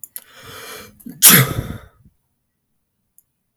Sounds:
Sneeze